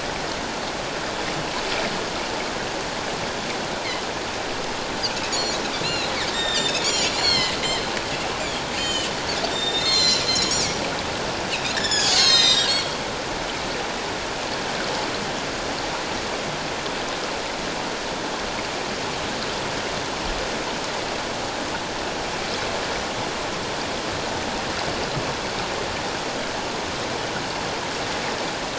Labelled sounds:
5.3	7.6	Pacific white-sided dolphin, 1.6 to 7.5 kHz
8.7	9.1	Pacific white-sided dolphin, 2.4 to 7.5 kHz
9.5	10.7	Pacific white-sided dolphin, 2.0 to 7.6 kHz
11.7	13.0	Pacific white-sided dolphin, 1.6 to 7.8 kHz

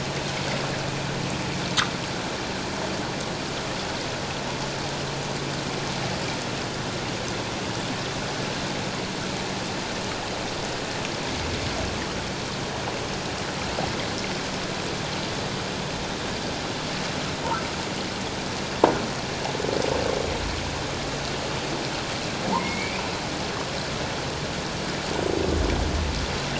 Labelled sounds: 22.6	23.1	humpback whale, 2.1 to 2.7 kHz

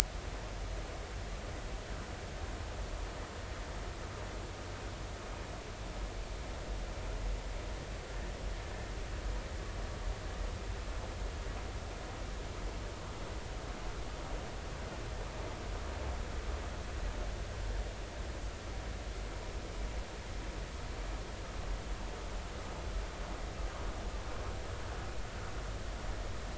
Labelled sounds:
8.7	8.9	vessel noise, 1.7 to 1.9 kHz

